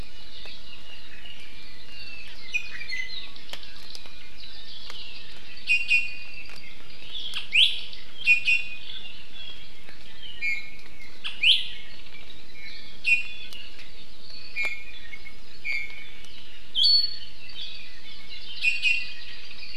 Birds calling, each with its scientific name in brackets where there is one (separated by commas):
Hawaii Amakihi (Chlorodrepanis virens), Apapane (Himatione sanguinea), Iiwi (Drepanis coccinea), Hawaii Creeper (Loxops mana)